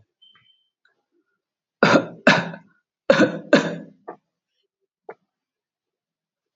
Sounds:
Cough